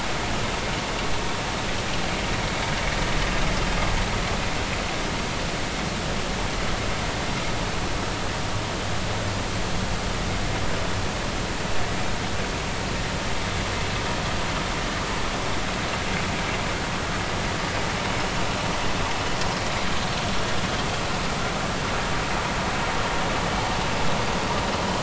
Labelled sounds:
20.2	20.4	vessel noise, 3.4 to 3.5 kHz

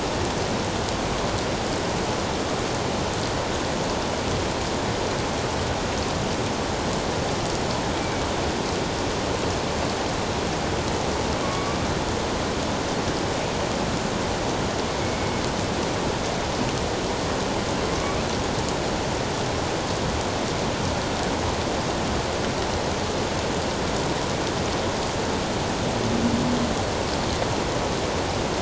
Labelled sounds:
11.4	11.8	killer whale, northern resident, 1.1 to 1.2 kHz
15.0	15.4	killer whale, northern resident, 2.16 to 2.25 kHz
17.9	18.2	killer whale, northern resident, 2.0 to 2.4 kHz

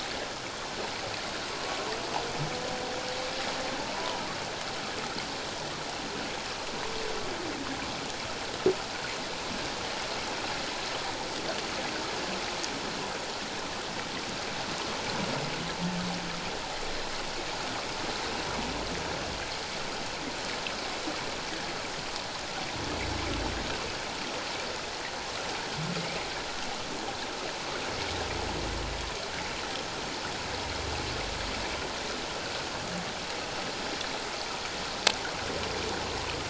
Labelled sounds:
3.8	4.3	humpback whale, 0.84 to 1.1 kHz

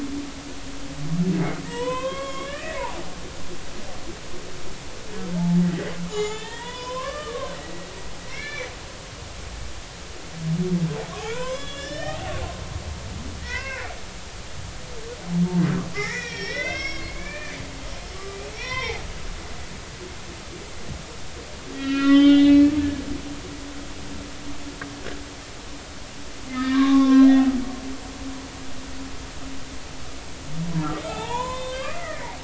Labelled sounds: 1.6	2.8	humpback whale, 0.90 to 3.8 kHz
5.3	7.9	humpback whale, 0.80 to 7.3 kHz
8.3	8.7	humpback whale, 1.6 to 4.2 kHz
11.2	12.3	humpback whale, 0.80 to 8.0 kHz
13.4	13.9	humpback whale, 0.93 to 2.8 kHz
15.9	17.6	humpback whale, 1.4 to 6.0 kHz
18.5	19.0	humpback whale, 0.80 to 5.8 kHz
21.7	22.7	humpback whale, 1.1 to 4.2 kHz
26.5	27.5	humpback whale, 0.80 to 4.1 kHz
31.1	32.2	humpback whale, 0.80 to 6.7 kHz

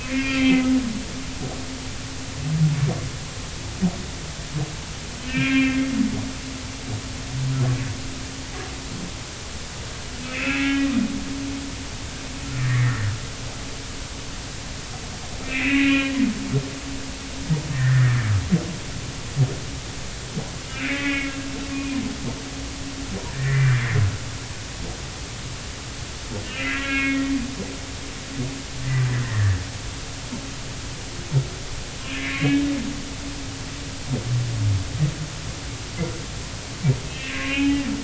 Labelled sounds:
0.0	0.7	humpback whale, 1.8 to 3.3 kHz
5.2	5.9	humpback whale, 1.5 to 3.3 kHz
10.2	10.9	humpback whale, 1.6 to 2.7 kHz
12.5	13.1	humpback whale, 1.7 to 2.2 kHz
15.4	16.2	humpback whale, 1.9 to 3.1 kHz
17.7	18.2	humpback whale, 1.7 to 2.0 kHz
20.7	21.3	humpback whale, 1.6 to 2.7 kHz
21.7	22.0	humpback whale, 2.3 to 2.5 kHz
23.3	23.8	humpback whale, 1.6 to 2.4 kHz
26.4	27.3	humpback whale, 1.3 to 3.4 kHz
29.2	29.6	humpback whale, 1.7 to 2.0 kHz
32.2	32.7	humpback whale, 1.6 to 3.9 kHz
37.1	37.8	humpback whale, 1.0 to 3.1 kHz

